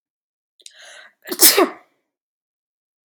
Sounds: Sneeze